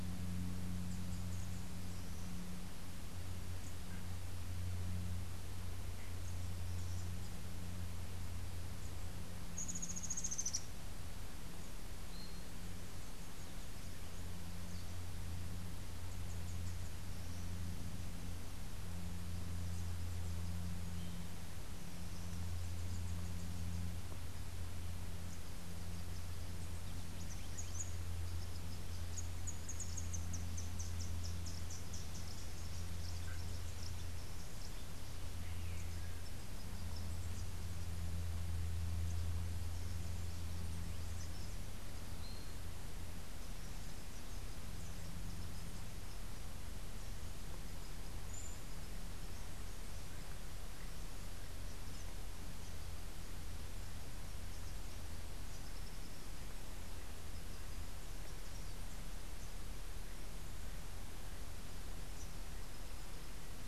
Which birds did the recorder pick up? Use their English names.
Rufous-tailed Hummingbird, Yellow-crowned Euphonia